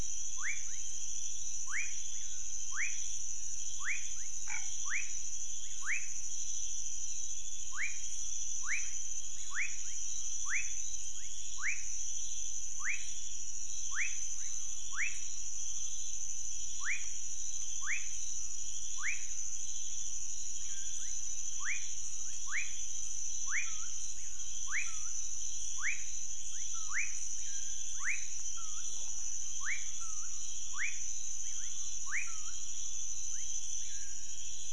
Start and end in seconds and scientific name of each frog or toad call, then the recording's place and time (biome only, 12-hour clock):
0.2	34.7	Leptodactylus fuscus
4.4	4.8	Boana raniceps
Cerrado, 2:00am